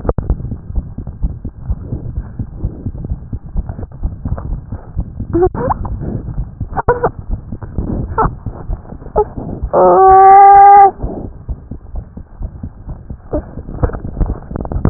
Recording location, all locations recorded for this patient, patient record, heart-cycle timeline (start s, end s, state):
tricuspid valve (TV)
aortic valve (AV)+pulmonary valve (PV)+tricuspid valve (TV)+mitral valve (MV)
#Age: Child
#Sex: Male
#Height: 71.0 cm
#Weight: 9.1 kg
#Pregnancy status: False
#Murmur: Absent
#Murmur locations: nan
#Most audible location: nan
#Systolic murmur timing: nan
#Systolic murmur shape: nan
#Systolic murmur grading: nan
#Systolic murmur pitch: nan
#Systolic murmur quality: nan
#Diastolic murmur timing: nan
#Diastolic murmur shape: nan
#Diastolic murmur grading: nan
#Diastolic murmur pitch: nan
#Diastolic murmur quality: nan
#Outcome: Abnormal
#Campaign: 2015 screening campaign
0.00	0.72	unannotated
0.72	0.86	S1
0.86	0.95	systole
0.95	1.04	S2
1.04	1.21	diastole
1.21	1.34	S1
1.34	1.42	systole
1.42	1.52	S2
1.52	1.66	diastole
1.66	1.80	S1
1.80	1.90	systole
1.90	2.00	S2
2.00	2.15	diastole
2.15	2.28	S1
2.28	2.36	systole
2.36	2.46	S2
2.46	2.62	diastole
2.62	2.74	S1
2.74	2.84	systole
2.84	2.92	S2
2.92	3.08	diastole
3.08	3.20	S1
3.20	3.30	systole
3.30	3.40	S2
3.40	3.54	diastole
3.54	3.66	S1
3.66	3.77	systole
3.77	3.86	S2
3.86	4.00	diastole
4.00	4.13	S1
4.13	14.90	unannotated